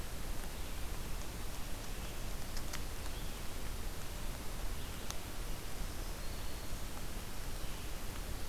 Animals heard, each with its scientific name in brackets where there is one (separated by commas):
Black-throated Green Warbler (Setophaga virens), Red-eyed Vireo (Vireo olivaceus)